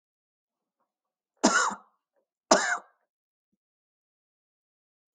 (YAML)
expert_labels:
- quality: ok
  cough_type: dry
  dyspnea: false
  wheezing: false
  stridor: false
  choking: false
  congestion: false
  nothing: true
  diagnosis: lower respiratory tract infection
  severity: mild
age: 62
gender: male
respiratory_condition: true
fever_muscle_pain: false
status: symptomatic